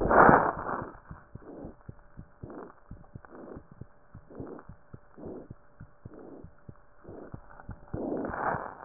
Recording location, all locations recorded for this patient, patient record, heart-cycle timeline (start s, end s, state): pulmonary valve (PV)
pulmonary valve (PV)+mitral valve (MV)
#Age: Child
#Sex: Male
#Height: nan
#Weight: nan
#Pregnancy status: False
#Murmur: Present
#Murmur locations: mitral valve (MV)
#Most audible location: mitral valve (MV)
#Systolic murmur timing: Early-systolic
#Systolic murmur shape: Plateau
#Systolic murmur grading: I/VI
#Systolic murmur pitch: Low
#Systolic murmur quality: Harsh
#Diastolic murmur timing: nan
#Diastolic murmur shape: nan
#Diastolic murmur grading: nan
#Diastolic murmur pitch: nan
#Diastolic murmur quality: nan
#Outcome: Abnormal
#Campaign: 2014 screening campaign
0.00	0.96	unannotated
0.96	1.09	diastole
1.09	1.20	S1
1.20	1.34	systole
1.34	1.42	S2
1.42	1.60	diastole
1.60	1.72	S1
1.72	1.88	systole
1.88	1.96	S2
1.96	2.18	diastole
2.18	2.26	S1
2.26	2.44	systole
2.44	2.52	S2
2.52	2.90	diastole
2.90	3.02	S1
3.02	3.16	systole
3.16	3.24	S2
3.24	3.53	diastole
3.53	3.62	S1
3.62	3.76	systole
3.76	3.86	S2
3.86	4.15	diastole
4.15	4.23	S1
4.23	4.39	systole
4.39	4.47	S2
4.47	4.69	diastole
4.69	8.85	unannotated